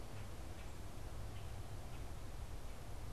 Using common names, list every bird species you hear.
Common Grackle